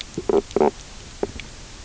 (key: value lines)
label: biophony, knock croak
recorder: SoundTrap 300